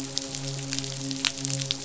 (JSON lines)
{"label": "biophony, midshipman", "recorder": "SoundTrap 500"}